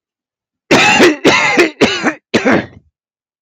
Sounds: Cough